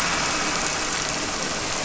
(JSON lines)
{"label": "anthrophony, boat engine", "recorder": "SoundTrap 300"}